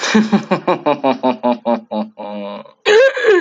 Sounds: Laughter